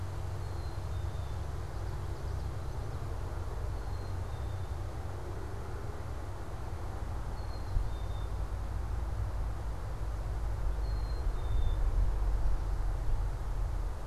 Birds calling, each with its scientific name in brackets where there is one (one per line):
Common Yellowthroat (Geothlypis trichas)
Black-capped Chickadee (Poecile atricapillus)